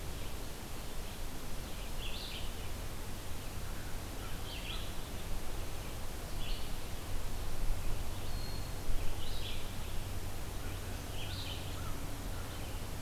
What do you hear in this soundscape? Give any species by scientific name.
Corvus brachyrhynchos, Contopus virens